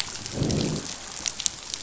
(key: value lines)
label: biophony, growl
recorder: SoundTrap 500